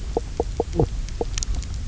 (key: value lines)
label: biophony, knock croak
recorder: SoundTrap 300